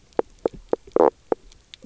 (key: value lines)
label: biophony, knock croak
recorder: SoundTrap 300